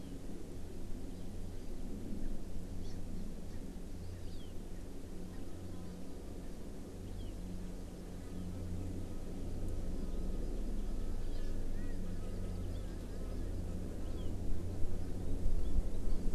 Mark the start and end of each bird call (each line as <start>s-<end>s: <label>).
2.8s-3.0s: Hawaii Amakihi (Chlorodrepanis virens)
11.9s-13.6s: Hawaii Amakihi (Chlorodrepanis virens)